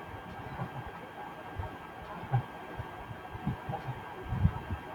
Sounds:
Laughter